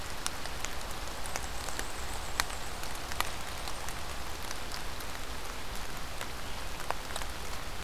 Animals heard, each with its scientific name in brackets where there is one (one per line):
Black-and-white Warbler (Mniotilta varia)